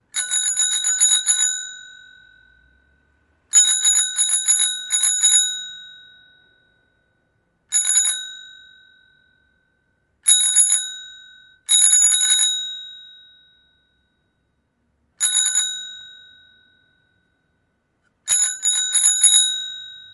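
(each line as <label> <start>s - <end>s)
A bicycle bell rings. 0.1s - 2.0s
A bicycle bell rings. 3.5s - 5.8s
A metallic bicycle bell rings. 7.7s - 8.6s
A metallic bicycle bell rings. 10.2s - 11.1s
A metallic bicycle bell rings. 11.7s - 13.0s
A metallic bicycle bell rings. 15.2s - 16.1s
A metallic bicycle bell rings. 18.3s - 20.1s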